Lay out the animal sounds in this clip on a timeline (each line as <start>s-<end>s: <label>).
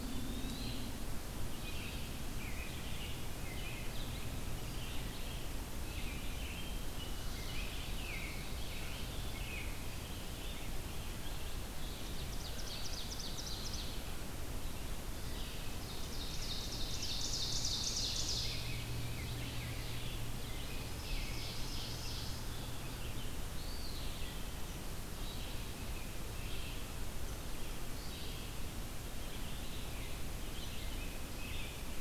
0.0s-0.8s: Eastern Wood-Pewee (Contopus virens)
0.0s-32.0s: Red-eyed Vireo (Vireo olivaceus)
1.5s-4.0s: American Robin (Turdus migratorius)
5.7s-9.8s: American Robin (Turdus migratorius)
11.8s-14.0s: Ovenbird (Seiurus aurocapilla)
15.8s-18.6s: Ovenbird (Seiurus aurocapilla)
17.9s-21.9s: American Robin (Turdus migratorius)
20.5s-22.5s: Ovenbird (Seiurus aurocapilla)
23.4s-24.6s: Eastern Wood-Pewee (Contopus virens)
25.5s-26.9s: American Robin (Turdus migratorius)
29.6s-32.0s: American Robin (Turdus migratorius)